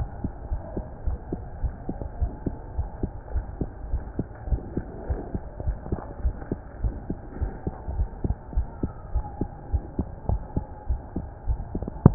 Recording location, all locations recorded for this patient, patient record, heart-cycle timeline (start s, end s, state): aortic valve (AV)
aortic valve (AV)+pulmonary valve (PV)+tricuspid valve (TV)+mitral valve (MV)
#Age: Child
#Sex: Female
#Height: 137.0 cm
#Weight: 28.2 kg
#Pregnancy status: False
#Murmur: Absent
#Murmur locations: nan
#Most audible location: nan
#Systolic murmur timing: nan
#Systolic murmur shape: nan
#Systolic murmur grading: nan
#Systolic murmur pitch: nan
#Systolic murmur quality: nan
#Diastolic murmur timing: nan
#Diastolic murmur shape: nan
#Diastolic murmur grading: nan
#Diastolic murmur pitch: nan
#Diastolic murmur quality: nan
#Outcome: Abnormal
#Campaign: 2015 screening campaign
0.00	0.10	S1
0.10	0.20	systole
0.20	0.32	S2
0.32	0.48	diastole
0.48	0.62	S1
0.62	0.76	systole
0.76	0.86	S2
0.86	1.04	diastole
1.04	1.18	S1
1.18	1.30	systole
1.30	1.41	S2
1.41	1.62	diastole
1.62	1.74	S1
1.74	1.87	systole
1.87	1.96	S2
1.96	2.18	diastole
2.18	2.30	S1
2.30	2.42	systole
2.42	2.56	S2
2.56	2.76	diastole
2.76	2.90	S1
2.90	3.00	systole
3.00	3.10	S2
3.10	3.32	diastole
3.32	3.46	S1
3.46	3.58	systole
3.58	3.70	S2
3.70	3.90	diastole
3.90	4.04	S1
4.04	4.17	systole
4.17	4.26	S2
4.26	4.48	diastole
4.48	4.64	S1
4.64	4.76	systole
4.76	4.86	S2
4.86	5.08	diastole
5.08	5.20	S1
5.20	5.33	systole
5.33	5.42	S2
5.42	5.64	diastole
5.64	5.78	S1
5.78	5.90	systole
5.90	6.00	S2
6.00	6.20	diastole
6.20	6.36	S1
6.36	6.49	systole
6.49	6.62	S2
6.62	6.82	diastole
6.82	6.98	S1
6.98	7.08	systole
7.08	7.20	S2
7.20	7.40	diastole
7.40	7.54	S1
7.54	7.65	systole
7.65	7.74	S2
7.74	7.96	diastole
7.96	8.08	S1
8.08	8.22	systole
8.22	8.38	S2
8.38	8.54	diastole
8.54	8.68	S1
8.68	8.81	systole
8.81	8.94	S2
8.94	9.11	diastole
9.11	9.25	S1
9.25	9.38	systole
9.38	9.50	S2
9.50	9.70	diastole
9.70	9.82	S1
9.82	9.97	systole
9.97	10.08	S2
10.08	10.28	diastole
10.28	10.42	S1
10.42	10.55	systole
10.55	10.65	S2
10.65	10.87	diastole
10.87	11.02	S1
11.02	11.15	systole
11.15	11.26	S2
11.26	11.46	diastole
11.46	11.60	S1